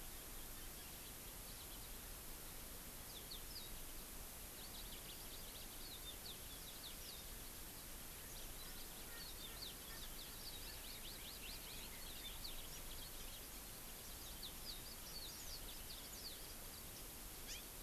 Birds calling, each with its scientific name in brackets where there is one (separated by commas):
Hawaii Amakihi (Chlorodrepanis virens), Yellow-fronted Canary (Crithagra mozambica), Red-billed Leiothrix (Leiothrix lutea), Erckel's Francolin (Pternistis erckelii)